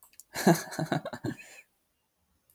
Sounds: Laughter